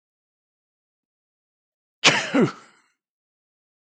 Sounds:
Sneeze